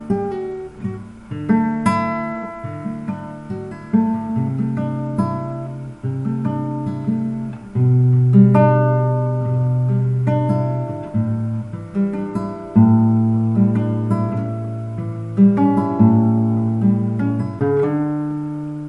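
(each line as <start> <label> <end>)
0.0 A rhythmic sequence of plucked notes on an acoustic guitar. 18.8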